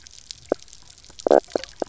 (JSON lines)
{"label": "biophony, knock croak", "recorder": "SoundTrap 300"}